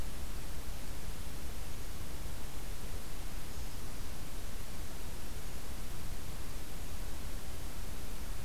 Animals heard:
forest ambience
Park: Acadia National Park